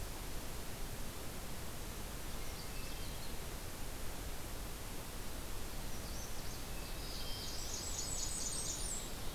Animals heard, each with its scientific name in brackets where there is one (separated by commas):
Blackburnian Warbler (Setophaga fusca), Hermit Thrush (Catharus guttatus), Black-throated Blue Warbler (Setophaga caerulescens), Magnolia Warbler (Setophaga magnolia), Nashville Warbler (Leiothlypis ruficapilla)